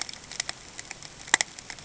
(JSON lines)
{"label": "ambient", "recorder": "HydroMoth"}